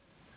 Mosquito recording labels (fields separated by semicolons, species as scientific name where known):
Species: Anopheles gambiae s.s.; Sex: female; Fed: unfed; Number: one; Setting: insect culture